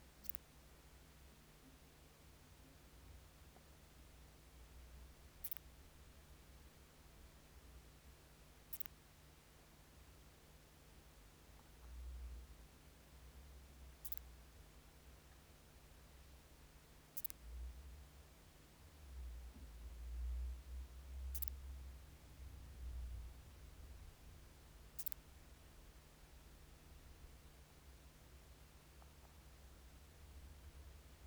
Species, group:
Leptophyes calabra, Orthoptera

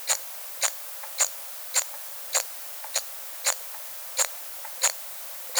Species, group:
Eupholidoptera smyrnensis, Orthoptera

